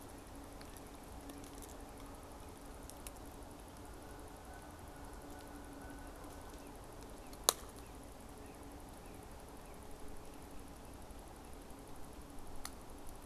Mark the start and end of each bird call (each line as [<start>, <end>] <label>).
[3.65, 6.85] Canada Goose (Branta canadensis)
[6.85, 10.05] Northern Cardinal (Cardinalis cardinalis)